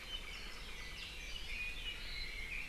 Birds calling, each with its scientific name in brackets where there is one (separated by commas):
Apapane (Himatione sanguinea), Red-billed Leiothrix (Leiothrix lutea)